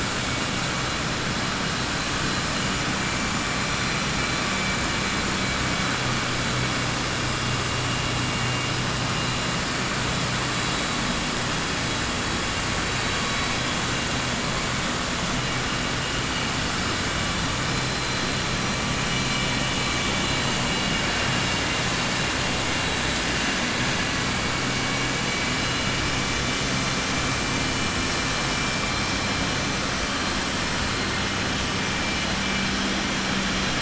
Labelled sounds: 19.0	19.5	vessel noise, 2.3 to 3.5 kHz

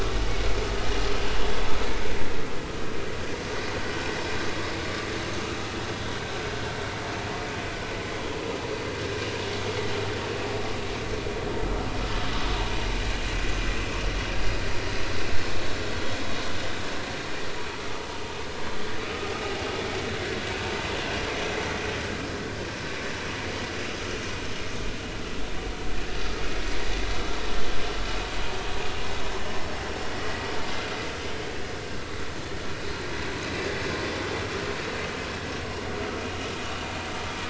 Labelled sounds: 30.2	30.5	vessel noise, 1.9 to 2.0 kHz

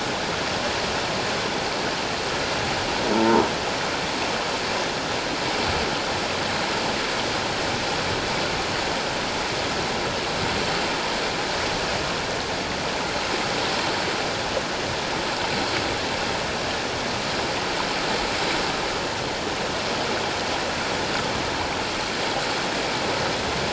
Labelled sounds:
3.1	3.5	croaking sound likely from a nearby submerged object, 0.81 to 1.1 kHz

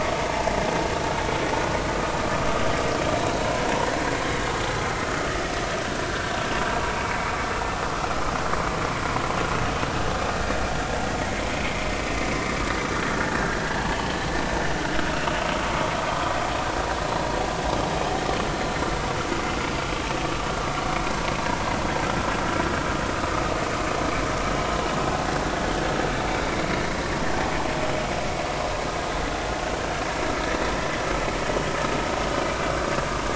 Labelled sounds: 6.1	6.4	vessel noise, 1.5 to 1.7 kHz
13.6	13.9	vessel noise, 1.5 to 1.8 kHz
16.1	16.4	vessel noise, 1.1 to 1.4 kHz
18.6	18.9	vessel noise, 4.0 to 4.2 kHz

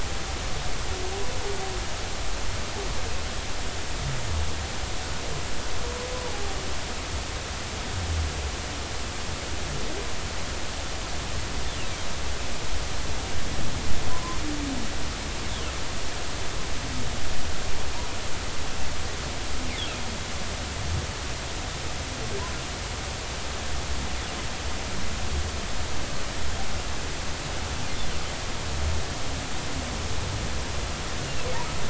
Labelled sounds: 14.1	14.4	humpback whale, 0.96 to 1.1 kHz

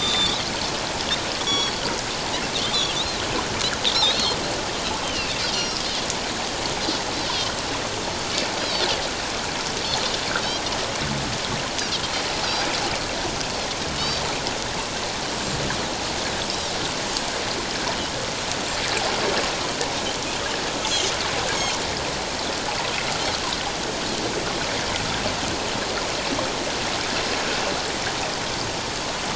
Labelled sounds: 1.4	1.8	Pacific white-sided dolphin, 3.2 to 7.9 kHz
2.7	3.2	Pacific white-sided dolphin, 3.0 to 4.2 kHz
4.1	4.4	Pacific white-sided dolphin, 3.6 to 4.4 kHz
5.0	5.8	Pacific white-sided dolphin, 2.5 to 5.9 kHz
14.0	14.2	Pacific white-sided dolphin, 5.1 to 5.5 kHz

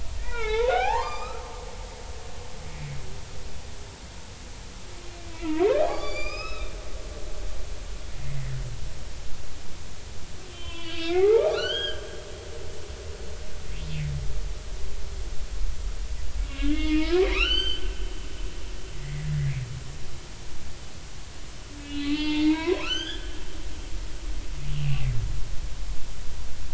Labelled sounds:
0.2	1.5	humpback whale, 0.80 to 5.2 kHz
5.3	6.7	humpback whale, 0.80 to 6.2 kHz
8.4	8.6	humpback whale, 1.7 to 2.1 kHz
10.5	12.3	humpback whale, 0.80 to 6.0 kHz
16.5	17.9	humpback whale, 0.86 to 6.3 kHz
18.9	19.6	humpback whale, 1.9 to 2.5 kHz
21.8	23.4	humpback whale, 0.86 to 6.4 kHz
24.7	25.0	humpback whale, 2.3 to 2.9 kHz

